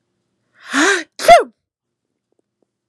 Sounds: Sneeze